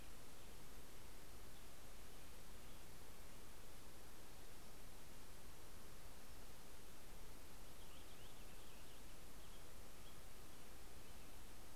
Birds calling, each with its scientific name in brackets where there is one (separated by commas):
American Robin (Turdus migratorius), Purple Finch (Haemorhous purpureus)